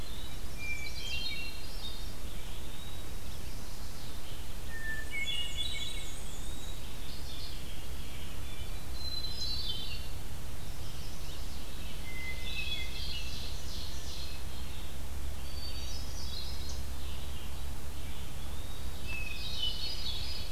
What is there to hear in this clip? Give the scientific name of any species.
Catharus guttatus, Contopus virens, Vireo olivaceus, Setophaga pensylvanica, Mniotilta varia, Seiurus aurocapilla